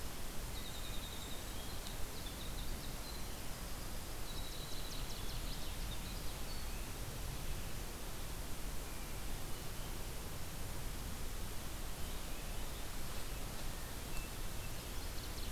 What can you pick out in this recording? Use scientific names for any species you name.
Troglodytes hiemalis, Vireo solitarius, Parkesia noveboracensis, Catharus ustulatus